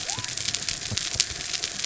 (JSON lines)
{"label": "biophony", "recorder": "SoundTrap 300"}